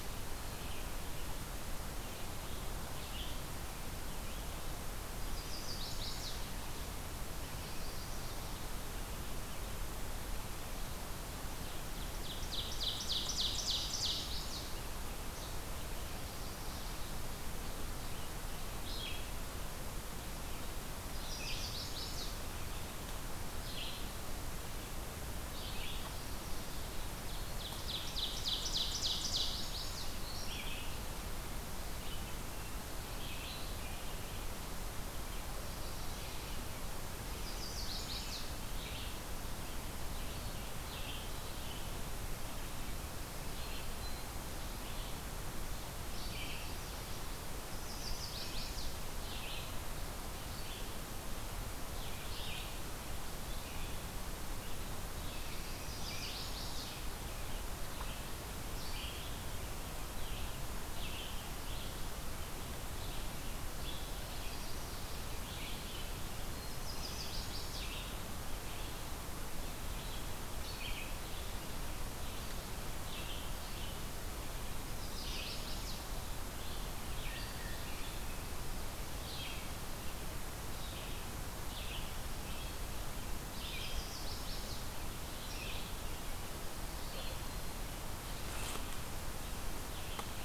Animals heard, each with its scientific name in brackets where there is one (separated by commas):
Chestnut-sided Warbler (Setophaga pensylvanica), Ovenbird (Seiurus aurocapilla), Red-eyed Vireo (Vireo olivaceus), Northern Parula (Setophaga americana)